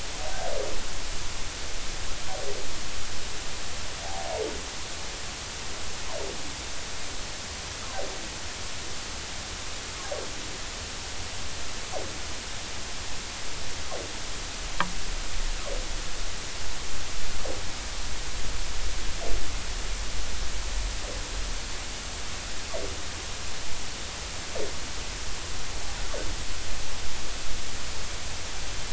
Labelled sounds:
4.0	4.3	humpback whale, 0.80 to 0.93 kHz

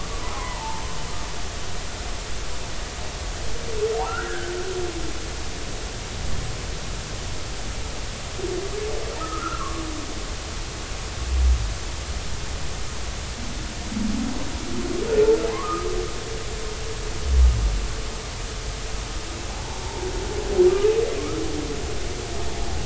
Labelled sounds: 0.2	0.8	humpback whale, 0.83 to 1.1 kHz
4.0	4.5	humpback whale, 1.2 to 1.7 kHz
9.2	9.8	humpback whale, 1.0 to 1.5 kHz
15.5	15.9	humpback whale, 0.96 to 1.3 kHz
19.6	20.1	humpback whale, 0.80 to 0.96 kHz

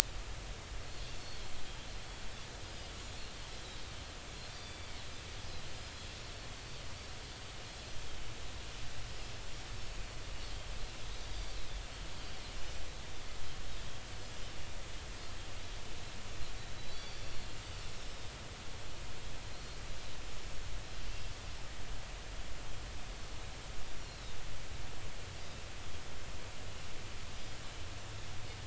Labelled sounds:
1.1	1.4	Pacific white-sided dolphin, 4.3 to 4.5 kHz
2.6	3.8	Pacific white-sided dolphin, 3.8 to 5.1 kHz
4.5	4.9	Pacific white-sided dolphin, 3.4 to 4.8 kHz
11.3	11.6	Pacific white-sided dolphin, 4.5 to 5.1 kHz
16.9	17.4	Pacific white-sided dolphin, 4.4 to 5.8 kHz
19.5	19.8	Pacific white-sided dolphin, 4.0 to 4.4 kHz
24.0	24.4	Pacific white-sided dolphin, 3.6 to 4.3 kHz

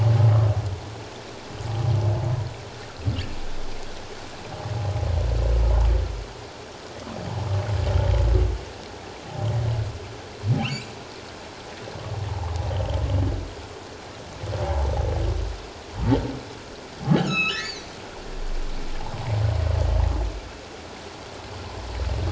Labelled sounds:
10.6	10.9	humpback whale, 2.2 to 3.2 kHz
12.7	13.0	humpback whale, 2.8 to 3.4 kHz
14.6	14.9	humpback whale, 0.78 to 1.0 kHz
17.1	17.9	humpback whale, 1.2 to 6.9 kHz

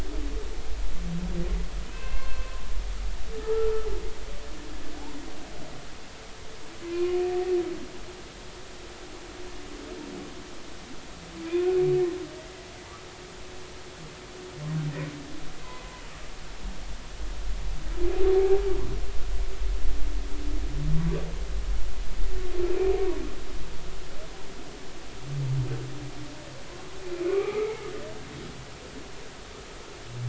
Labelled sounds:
1.9	2.4	humpback whale, 0.99 to 4.3 kHz
3.4	3.9	humpback whale, 0.80 to 1.4 kHz
6.9	7.2	humpback whale, 0.99 to 1.1 kHz
18.2	18.6	humpback whale, 0.80 to 0.90 kHz
22.7	23.0	humpback whale, 2.3 to 2.6 kHz
27.3	27.9	humpback whale, 0.99 to 2.6 kHz

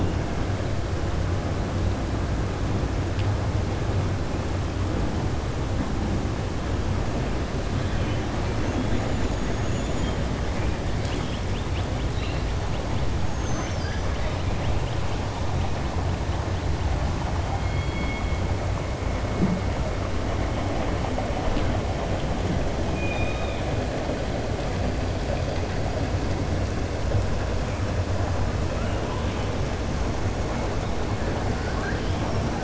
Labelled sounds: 7.8	8.2	killer whale, 1.8 to 3.9 kHz
9.0	10.1	killer whale, 6.0 to 7.1 kHz
13.2	14.1	killer whale, 4.6 to 7.2 kHz
22.9	23.7	killer whale, 2.3 to 3.8 kHz
31.5	32.2	killer whale, 1.1 to 3.9 kHz

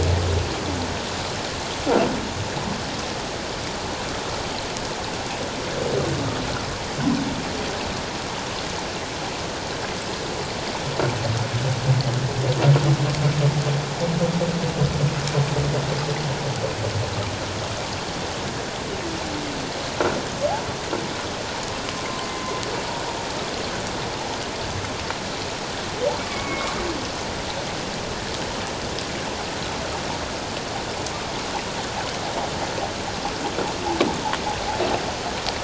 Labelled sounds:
26.3	26.8	humpback whale, 1.0 to 2.3 kHz

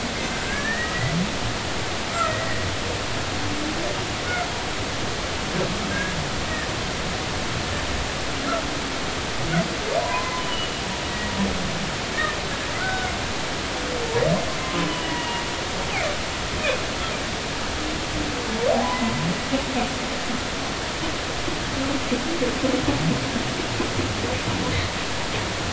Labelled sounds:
0.5	0.9	humpback whale, 1.5 to 2.0 kHz
2.2	2.7	humpback whale, 1.8 to 2.0 kHz
5.9	6.1	humpback whale, 1.5 to 1.7 kHz
10.0	10.7	humpback whale, 0.93 to 3.0 kHz
11.1	11.3	humpback whale, 1.9 to 2.0 kHz
12.8	13.1	humpback whale, 1.4 to 1.6 kHz
14.6	15.4	humpback whale, 0.96 to 3.0 kHz

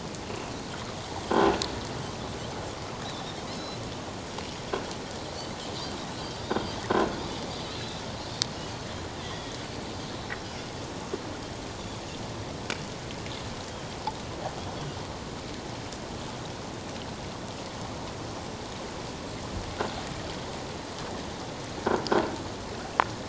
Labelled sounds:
0.3	0.5	Pacific white-sided dolphin, 2.5 to 2.8 kHz
3.0	3.8	Pacific white-sided dolphin, 3.5 to 5.4 kHz
7.7	8.0	Pacific white-sided dolphin, 3.8 to 4.2 kHz
9.2	9.5	Pacific white-sided dolphin, 1.8 to 2.0 kHz

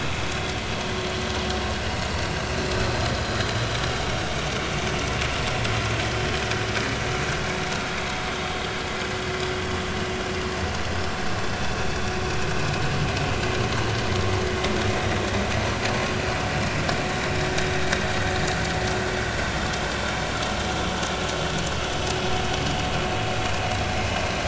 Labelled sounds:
11.6	12.2	vessel noise, 2.5 to 5.7 kHz

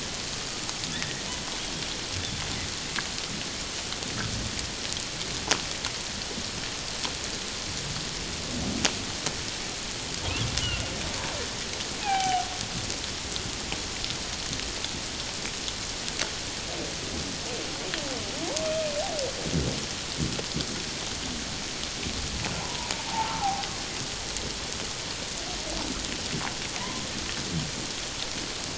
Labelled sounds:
0.9	1.2	humpback whale, 1.7 to 2.0 kHz
10.6	10.9	humpback whale, 1.3 to 1.5 kHz
12.0	12.5	humpback whale, 0.78 to 2.6 kHz
22.6	23.4	humpback whale, 0.78 to 1.1 kHz

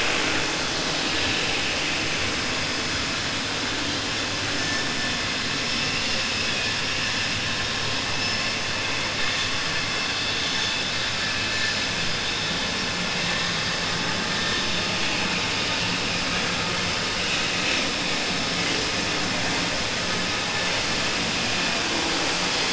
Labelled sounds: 6.3	6.7	vessel noise, 1.7 to 3.5 kHz

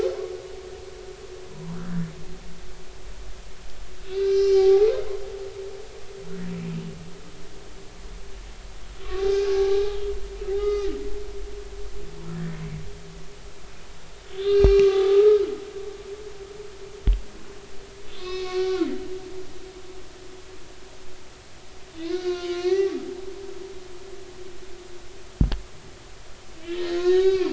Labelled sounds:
1.5	2.1	humpback whale, 0.93 to 1.9 kHz
4.0	4.9	humpback whale, 0.80 to 4.0 kHz
9.0	9.8	humpback whale, 0.80 to 3.7 kHz
10.5	10.9	humpback whale, 1.2 to 5.0 kHz
12.3	12.6	humpback whale, 1.6 to 1.9 kHz
14.3	15.3	humpback whale, 0.80 to 4.0 kHz
18.1	18.9	humpback whale, 1.0 to 5.3 kHz
22.1	23.0	humpback whale, 1.0 to 4.7 kHz
26.6	27.5	humpback whale, 0.90 to 6.9 kHz

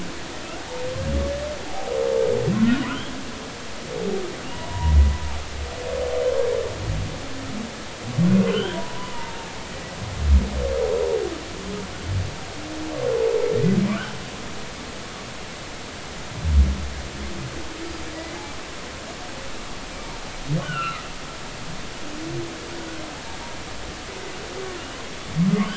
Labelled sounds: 1.6	1.9	humpback whale, 0.80 to 0.90 kHz
2.6	2.9	humpback whale, 1.3 to 1.5 kHz
4.4	5.0	humpback whale, 0.90 to 2.9 kHz
8.5	9.4	humpback whale, 0.86 to 3.4 kHz
13.9	14.2	humpback whale, 1.1 to 1.7 kHz
18.1	18.4	humpback whale, 1.9 to 2.1 kHz
20.6	21.0	humpback whale, 1.2 to 3.1 kHz

